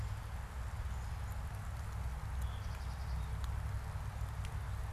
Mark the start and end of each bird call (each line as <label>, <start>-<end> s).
Veery (Catharus fuscescens), 2.2-2.8 s
Black-capped Chickadee (Poecile atricapillus), 2.4-3.4 s